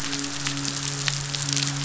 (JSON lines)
{"label": "biophony, midshipman", "recorder": "SoundTrap 500"}